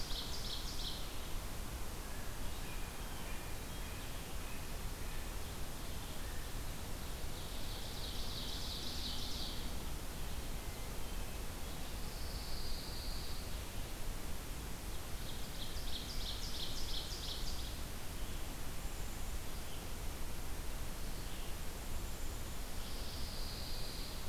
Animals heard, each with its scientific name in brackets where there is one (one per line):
Ovenbird (Seiurus aurocapilla)
Blue Jay (Cyanocitta cristata)
Black-capped Chickadee (Poecile atricapillus)
Red-eyed Vireo (Vireo olivaceus)
Pine Warbler (Setophaga pinus)